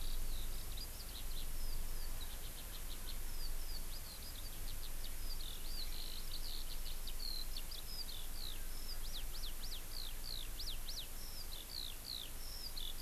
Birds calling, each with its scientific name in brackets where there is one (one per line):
Eurasian Skylark (Alauda arvensis)